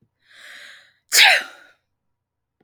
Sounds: Sneeze